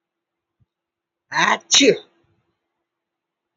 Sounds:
Sneeze